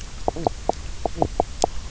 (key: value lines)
label: biophony, knock croak
recorder: SoundTrap 300